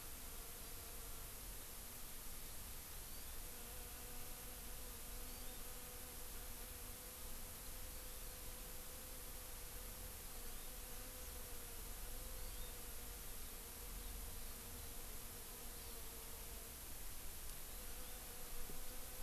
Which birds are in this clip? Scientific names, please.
Chlorodrepanis virens